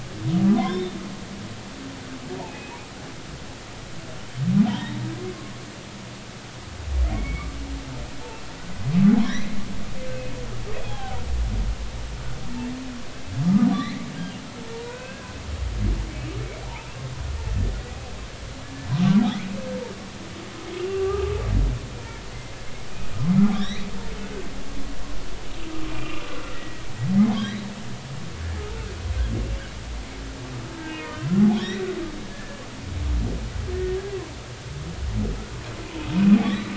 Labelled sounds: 0.5	0.9	humpback whale, 0.96 to 3.8 kHz
2.4	2.8	humpback whale, 2.5 to 2.7 kHz
4.7	5.0	humpback whale, 0.83 to 1.0 kHz
7.1	7.5	humpback whale, 2.0 to 2.4 kHz
9.2	10.3	humpback whale, 1.6 to 4.0 kHz
10.8	11.2	humpback whale, 0.80 to 3.5 kHz
13.7	15.4	humpback whale, 1.4 to 4.2 kHz
18.9	19.5	humpback whale, 1.1 to 3.9 kHz
20.8	21.3	humpback whale, 1.1 to 3.0 kHz
23.5	23.9	humpback whale, 1.5 to 5.9 kHz
25.9	26.8	humpback whale, 1.3 to 2.8 kHz
27.4	27.6	humpback whale, 3.6 to 4.0 kHz
30.8	32.6	humpback whale, 0.80 to 4.1 kHz
33.7	34.0	humpback whale, 1.8 to 1.9 kHz
36.5	36.7	humpback whale, 3.5 to 4.1 kHz

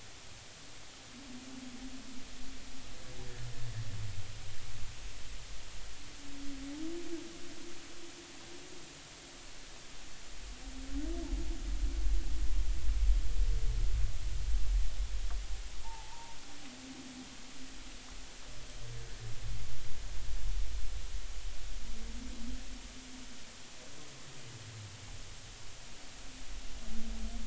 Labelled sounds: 15.8	16.4	humpback whale, 0.80 to 0.99 kHz

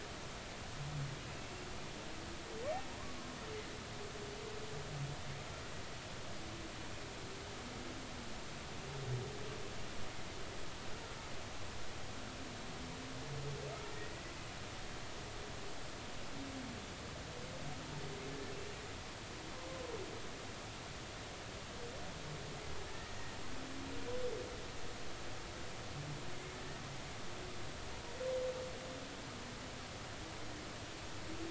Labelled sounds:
1.3	1.7	humpback whale, 2.5 to 2.8 kHz
13.9	14.2	humpback whale, 1.8 to 2.0 kHz

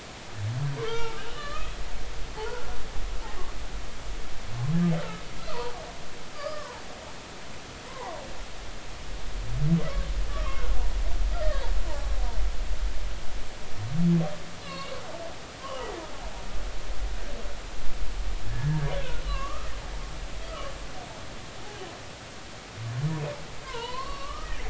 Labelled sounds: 0.8	1.8	humpback whale, 0.83 to 3.4 kHz
2.4	2.6	humpback whale, 0.80 to 1.1 kHz
5.5	6.8	humpback whale, 0.80 to 1.4 kHz
7.9	8.2	humpback whale, 0.80 to 1.2 kHz
10.3	10.6	humpback whale, 1.0 to 1.3 kHz
14.6	15.0	humpback whale, 1.0 to 4.1 kHz
15.6	15.9	humpback whale, 2.8 to 3.2 kHz
18.5	19.7	humpback whale, 1.0 to 3.0 kHz
23.6	24.6	humpback whale, 0.86 to 4.5 kHz

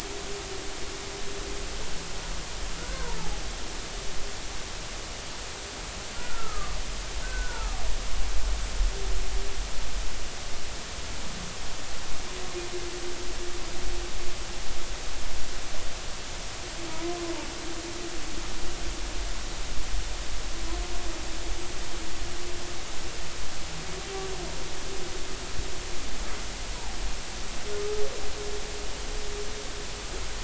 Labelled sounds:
2.7	3.1	humpback whale, 1.2 to 1.6 kHz
6.2	6.8	humpback whale, 1.1 to 1.5 kHz
7.2	7.7	humpback whale, 1.2 to 1.6 kHz
16.9	17.2	humpback whale, 0.93 to 1.1 kHz

